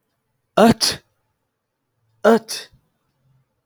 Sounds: Sneeze